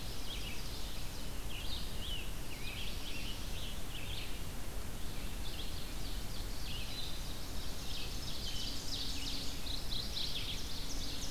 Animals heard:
Ovenbird (Seiurus aurocapilla)
Red-eyed Vireo (Vireo olivaceus)
Mourning Warbler (Geothlypis philadelphia)
Scarlet Tanager (Piranga olivacea)
Black-throated Blue Warbler (Setophaga caerulescens)

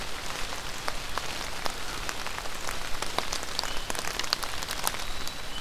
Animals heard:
unidentified call

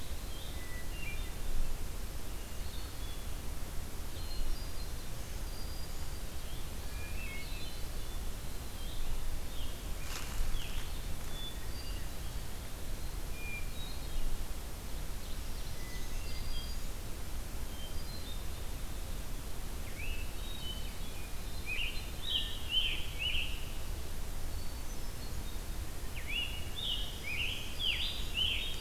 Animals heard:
Black-throated Green Warbler (Setophaga virens)
Hermit Thrush (Catharus guttatus)
Red-eyed Vireo (Vireo olivaceus)
Ovenbird (Seiurus aurocapilla)
Scarlet Tanager (Piranga olivacea)

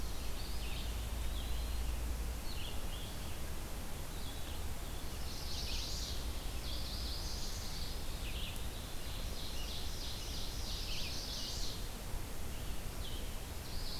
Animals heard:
Chestnut-sided Warbler (Setophaga pensylvanica)
Eastern Wood-Pewee (Contopus virens)
Red-eyed Vireo (Vireo olivaceus)
Ovenbird (Seiurus aurocapilla)

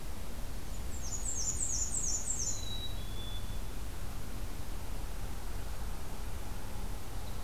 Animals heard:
Black-and-white Warbler (Mniotilta varia)
Black-capped Chickadee (Poecile atricapillus)

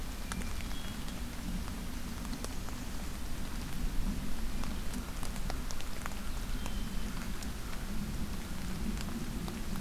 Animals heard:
Hermit Thrush (Catharus guttatus)

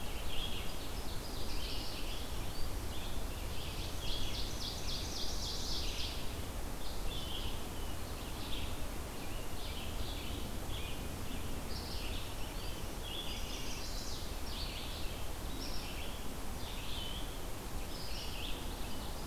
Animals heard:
Red-eyed Vireo (Vireo olivaceus)
Chestnut-sided Warbler (Setophaga pensylvanica)
Ovenbird (Seiurus aurocapilla)
Eastern Wood-Pewee (Contopus virens)

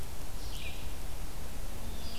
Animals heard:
Red-eyed Vireo (Vireo olivaceus)

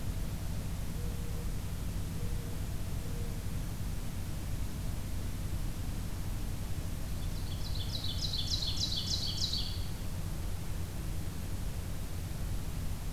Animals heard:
Mourning Dove (Zenaida macroura)
Ovenbird (Seiurus aurocapilla)

